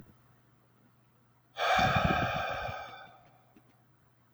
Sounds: Sigh